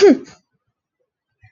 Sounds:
Sneeze